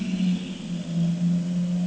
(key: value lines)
label: anthrophony, boat engine
recorder: HydroMoth